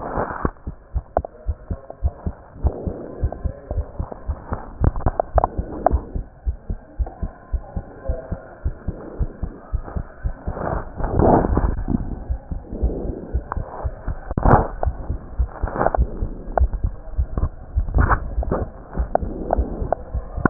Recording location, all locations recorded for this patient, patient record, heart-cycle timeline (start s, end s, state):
pulmonary valve (PV)
aortic valve (AV)+pulmonary valve (PV)+tricuspid valve (TV)+mitral valve (MV)
#Age: Child
#Sex: Male
#Height: 119.0 cm
#Weight: 23.8 kg
#Pregnancy status: False
#Murmur: Absent
#Murmur locations: nan
#Most audible location: nan
#Systolic murmur timing: nan
#Systolic murmur shape: nan
#Systolic murmur grading: nan
#Systolic murmur pitch: nan
#Systolic murmur quality: nan
#Diastolic murmur timing: nan
#Diastolic murmur shape: nan
#Diastolic murmur grading: nan
#Diastolic murmur pitch: nan
#Diastolic murmur quality: nan
#Outcome: Normal
#Campaign: 2015 screening campaign
0.00	0.73	unannotated
0.73	0.92	diastole
0.92	1.02	S1
1.02	1.14	systole
1.14	1.24	S2
1.24	1.46	diastole
1.46	1.56	S1
1.56	1.68	systole
1.68	1.78	S2
1.78	2.01	diastole
2.01	2.14	S1
2.14	2.24	systole
2.24	2.34	S2
2.34	2.62	diastole
2.62	2.74	S1
2.74	2.84	systole
2.84	2.94	S2
2.94	3.18	diastole
3.18	3.32	S1
3.32	3.42	systole
3.42	3.52	S2
3.52	3.72	diastole
3.72	3.86	S1
3.86	3.96	systole
3.96	4.06	S2
4.06	4.26	diastole
4.26	4.36	S1
4.36	4.48	systole
4.48	4.58	S2
4.58	4.80	diastole
4.80	4.96	S1
4.96	5.04	systole
5.04	5.14	S2
5.14	5.34	diastole
5.34	5.46	S1
5.46	5.56	systole
5.56	5.66	S2
5.66	5.90	diastole
5.90	6.02	S1
6.02	6.14	systole
6.14	6.24	S2
6.24	6.44	diastole
6.44	6.56	S1
6.56	6.68	systole
6.68	6.78	S2
6.78	6.97	diastole
6.97	7.08	S1
7.08	7.20	systole
7.20	7.30	S2
7.30	7.52	diastole
7.52	7.62	S1
7.62	7.74	systole
7.74	7.84	S2
7.84	8.08	diastole
8.08	8.20	S1
8.20	8.30	systole
8.30	8.40	S2
8.40	8.64	diastole
8.64	8.74	S1
8.74	8.86	systole
8.86	8.96	S2
8.96	9.18	diastole
9.18	9.28	S1
9.28	9.40	systole
9.40	9.50	S2
9.50	9.70	diastole
9.70	9.86	S1
9.86	9.94	systole
9.94	10.04	S2
10.04	10.22	diastole
10.22	10.36	S1
10.36	10.45	systole
10.45	10.54	S2
10.54	10.73	diastole
10.73	20.50	unannotated